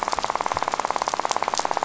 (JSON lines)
{"label": "biophony, rattle", "recorder": "SoundTrap 500"}